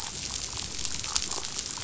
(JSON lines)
{"label": "biophony, chatter", "recorder": "SoundTrap 500"}